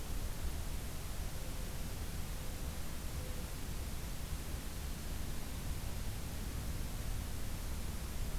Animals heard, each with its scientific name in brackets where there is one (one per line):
Mourning Dove (Zenaida macroura)
Black-throated Green Warbler (Setophaga virens)